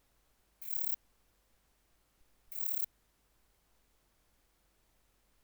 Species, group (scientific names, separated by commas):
Rhacocleis germanica, Orthoptera